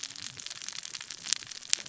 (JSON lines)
{"label": "biophony, cascading saw", "recorder": "SoundTrap 600 or HydroMoth"}